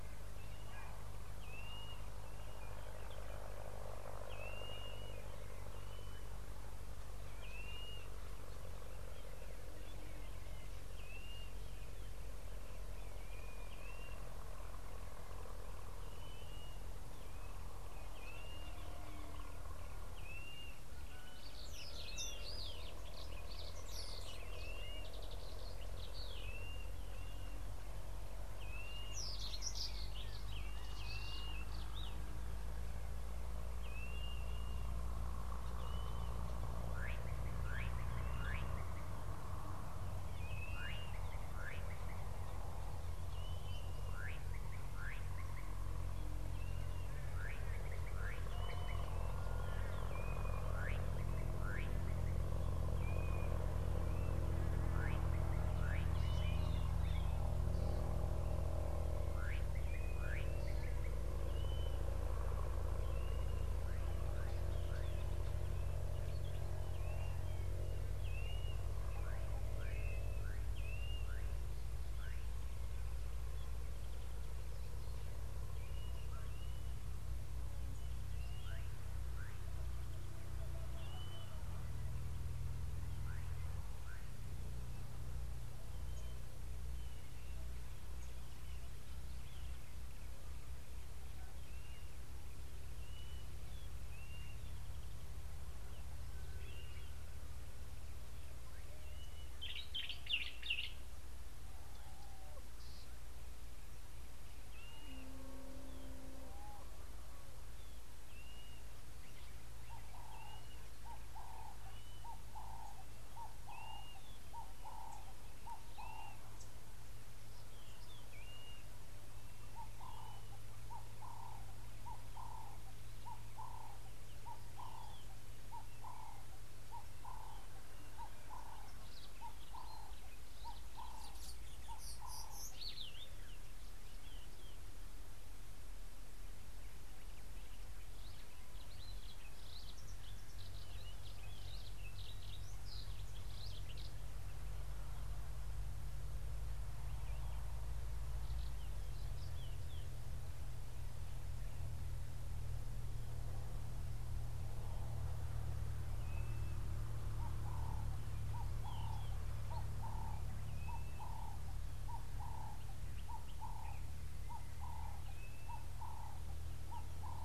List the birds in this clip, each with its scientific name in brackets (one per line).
Ring-necked Dove (Streptopelia capicola)
Blue-naped Mousebird (Urocolius macrourus)
Brimstone Canary (Crithagra sulphurata)
Common Bulbul (Pycnonotus barbatus)
Slate-colored Boubou (Laniarius funebris)